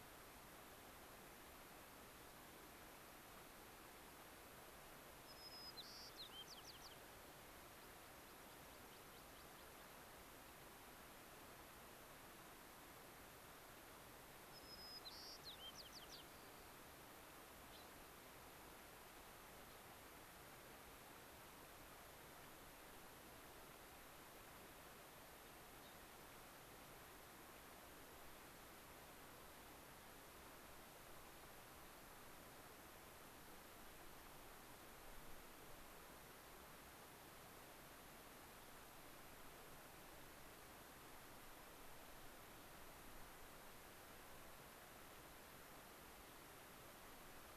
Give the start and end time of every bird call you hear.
5.1s-7.4s: White-crowned Sparrow (Zonotrichia leucophrys)
7.7s-10.2s: American Pipit (Anthus rubescens)
14.4s-16.9s: White-crowned Sparrow (Zonotrichia leucophrys)
17.6s-18.0s: Gray-crowned Rosy-Finch (Leucosticte tephrocotis)
25.7s-26.0s: Gray-crowned Rosy-Finch (Leucosticte tephrocotis)

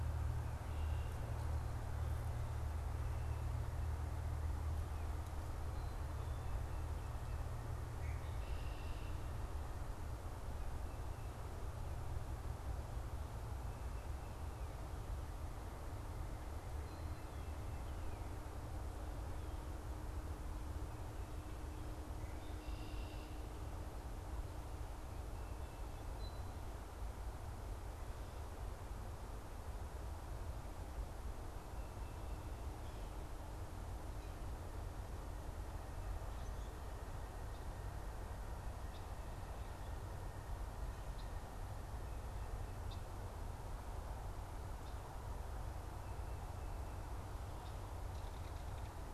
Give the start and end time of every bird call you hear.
0.5s-1.2s: Red-winged Blackbird (Agelaius phoeniceus)
7.7s-9.3s: Red-winged Blackbird (Agelaius phoeniceus)
22.1s-23.5s: Red-winged Blackbird (Agelaius phoeniceus)
38.8s-43.2s: Red-winged Blackbird (Agelaius phoeniceus)
48.2s-49.1s: Belted Kingfisher (Megaceryle alcyon)

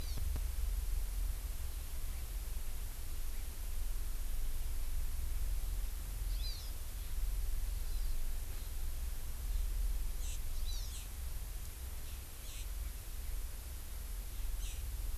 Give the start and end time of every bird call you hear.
6.3s-6.7s: Hawaii Amakihi (Chlorodrepanis virens)
7.8s-8.2s: Hawaii Amakihi (Chlorodrepanis virens)
10.6s-10.9s: Hawaii Amakihi (Chlorodrepanis virens)

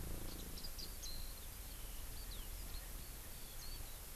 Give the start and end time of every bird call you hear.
0.0s-4.2s: Eurasian Skylark (Alauda arvensis)

